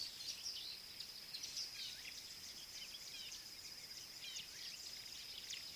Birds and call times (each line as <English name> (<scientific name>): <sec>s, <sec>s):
Gray-backed Camaroptera (Camaroptera brevicaudata): 4.3s